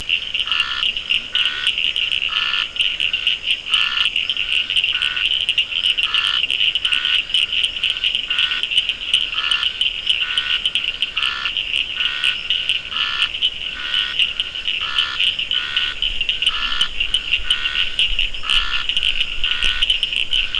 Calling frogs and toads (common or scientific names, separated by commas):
Scinax perereca, Cochran's lime tree frog, Leptodactylus latrans